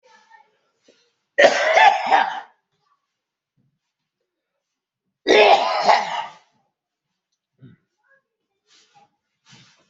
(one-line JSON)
{"expert_labels": [{"quality": "good", "cough_type": "wet", "dyspnea": false, "wheezing": false, "stridor": false, "choking": false, "congestion": false, "nothing": true, "diagnosis": "lower respiratory tract infection", "severity": "unknown"}], "age": 37, "gender": "male", "respiratory_condition": false, "fever_muscle_pain": false, "status": "symptomatic"}